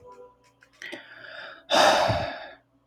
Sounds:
Sigh